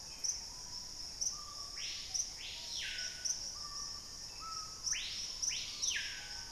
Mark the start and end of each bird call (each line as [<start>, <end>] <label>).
[0.00, 0.80] Gray Antbird (Cercomacra cinerascens)
[0.00, 6.52] Screaming Piha (Lipaugus vociferans)